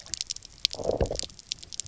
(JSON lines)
{"label": "biophony, low growl", "recorder": "SoundTrap 300"}